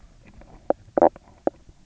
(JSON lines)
{"label": "biophony, knock croak", "recorder": "SoundTrap 300"}